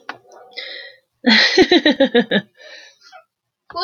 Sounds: Laughter